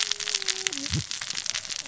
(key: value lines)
label: biophony, cascading saw
recorder: SoundTrap 600 or HydroMoth